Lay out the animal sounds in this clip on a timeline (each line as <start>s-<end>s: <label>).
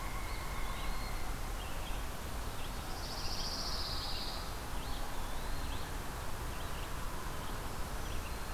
0.0s-8.5s: Red-eyed Vireo (Vireo olivaceus)
0.2s-1.6s: Eastern Wood-Pewee (Contopus virens)
2.6s-4.6s: Pine Warbler (Setophaga pinus)
4.7s-5.8s: Eastern Wood-Pewee (Contopus virens)
7.5s-8.5s: Black-throated Green Warbler (Setophaga virens)